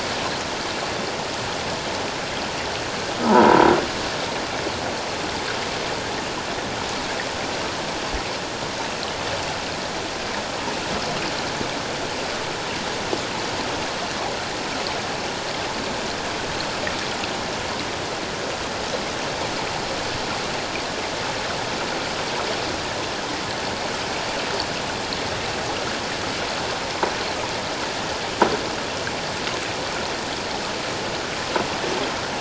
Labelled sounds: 3.3	3.7	croaking sound likely from a nearby submerged object, 0.81 to 1.1 kHz

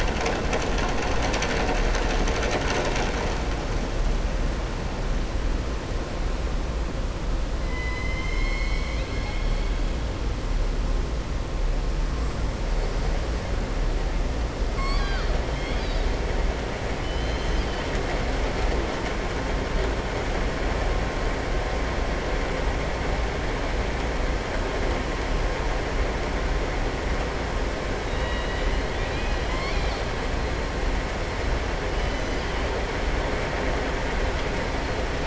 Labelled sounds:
7.6	9.7	killer whale, southern resident, 1.0 to 6.4 kHz
14.7	15.3	killer whale, southern resident, 0.83 to 5.6 kHz
17.0	17.9	killer whale, southern resident, 2.6 to 6.2 kHz
28.0	29.4	killer whale, southern resident, 1.7 to 4.8 kHz

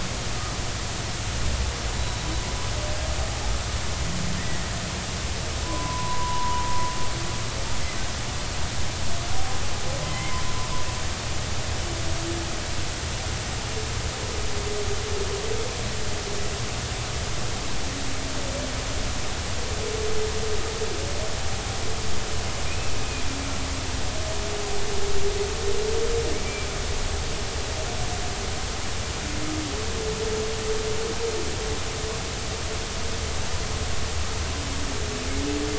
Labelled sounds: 2.0	2.3	humpback whale, 3.8 to 4.0 kHz
5.6	6.7	humpback whale, 0.93 to 1.1 kHz
10.0	10.4	humpback whale, 1.9 to 3.1 kHz
22.7	22.9	humpback whale, 2.3 to 2.7 kHz
26.4	26.7	humpback whale, 2.3 to 2.4 kHz

